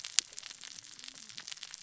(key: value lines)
label: biophony, cascading saw
recorder: SoundTrap 600 or HydroMoth